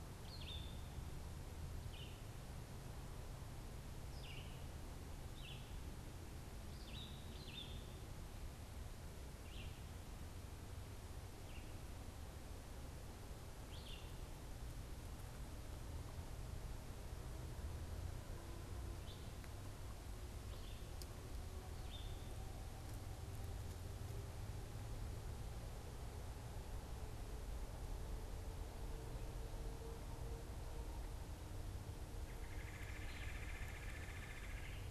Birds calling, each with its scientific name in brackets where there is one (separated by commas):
Red-bellied Woodpecker (Melanerpes carolinus), Red-eyed Vireo (Vireo olivaceus)